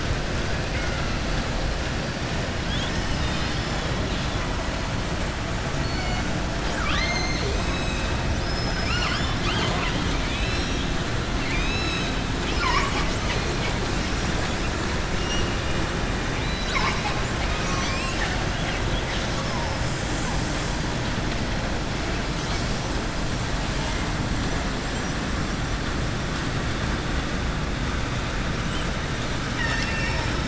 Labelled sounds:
5.7	6.2	killer whale, southern resident, 4.3 to 4.6 kHz
12.3	13.7	killer whale, southern resident, 0.94 to 7.9 kHz
16.4	19.3	killer whale, southern resident, 0.84 to 7.7 kHz
29.4	30.4	killer whale, southern resident, 0.90 to 7.4 kHz

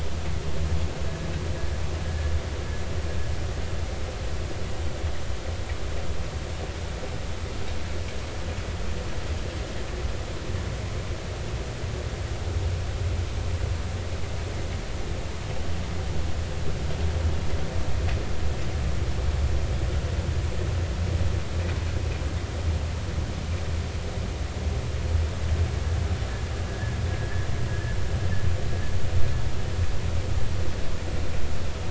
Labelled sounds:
26.7	28.0	vessel noise, 1.6 to 1.8 kHz

